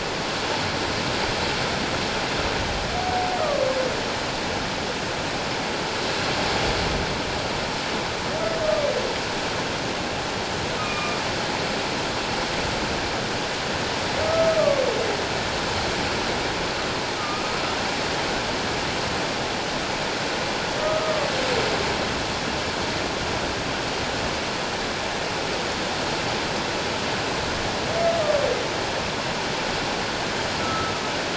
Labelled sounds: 10.8	11.2	humpback whale, 1.1 to 2.6 kHz
14.2	14.8	humpback whale, 1.1 to 1.3 kHz
17.2	17.5	humpback whale, 1.2 to 1.4 kHz
20.8	21.3	humpback whale, 1.1 to 1.3 kHz
30.6	30.9	humpback whale, 1.2 to 1.5 kHz

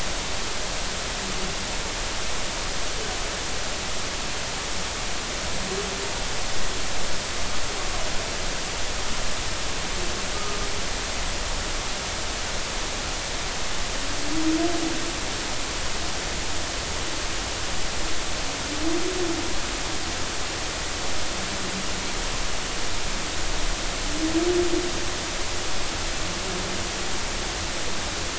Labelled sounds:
10.3	10.6	humpback whale, 1.2 to 1.3 kHz

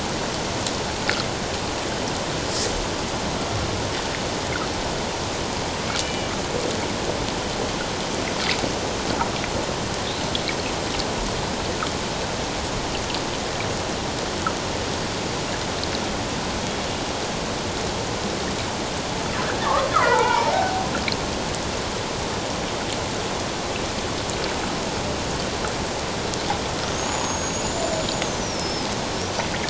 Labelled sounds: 6.0	6.3	killer whale, Bigg's (transient), 2.3 to 3.0 kHz
19.9	20.9	killer whale, Bigg's (transient), 0.78 to 2.5 kHz
26.9	29.5	killer whale, Bigg's (transient), 4.9 to 7.2 kHz

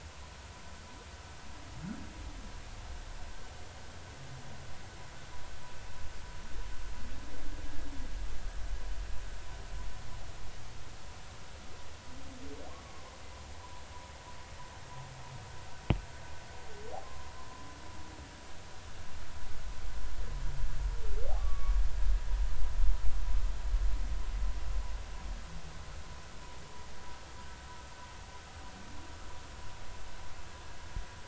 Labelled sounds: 17.0	17.3	humpback whale, 0.99 to 1.1 kHz
21.4	21.7	humpback whale, 1.1 to 1.2 kHz

